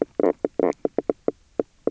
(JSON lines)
{"label": "biophony, knock croak", "recorder": "SoundTrap 300"}